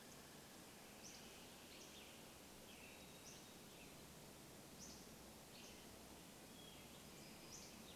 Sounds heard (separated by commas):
Hermit Thrush song, Hammond's Flycatcher song, Red-breasted Nuthatch song, Western Tanager song